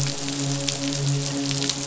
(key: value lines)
label: biophony, midshipman
recorder: SoundTrap 500